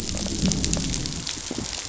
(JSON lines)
{"label": "biophony, growl", "recorder": "SoundTrap 500"}